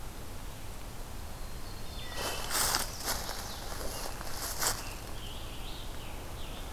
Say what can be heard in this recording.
Black-throated Blue Warbler, Wood Thrush, Chestnut-sided Warbler, Scarlet Tanager